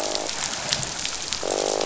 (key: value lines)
label: biophony, croak
recorder: SoundTrap 500